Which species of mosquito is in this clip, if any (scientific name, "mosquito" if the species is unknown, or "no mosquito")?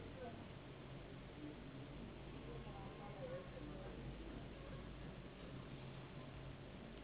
Anopheles gambiae s.s.